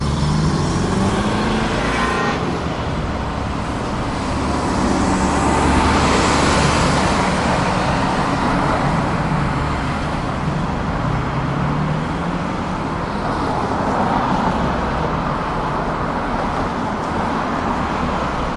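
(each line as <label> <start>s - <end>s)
City traffic with vehicles passing by. 0.0s - 18.6s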